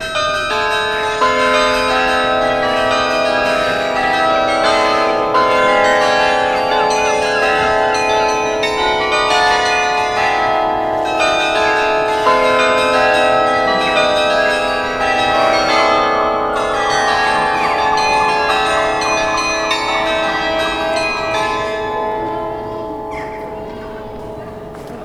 Is there a saxophone being played?
no